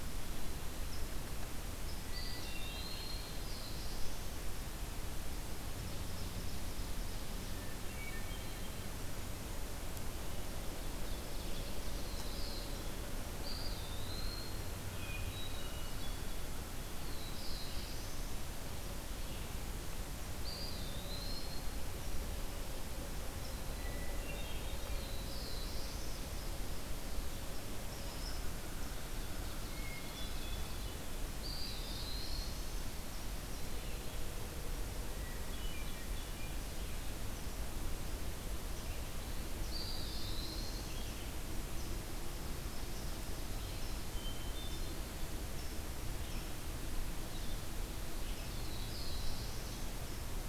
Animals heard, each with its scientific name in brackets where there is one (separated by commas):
Hermit Thrush (Catharus guttatus), Eastern Wood-Pewee (Contopus virens), Black-throated Blue Warbler (Setophaga caerulescens), Ovenbird (Seiurus aurocapilla)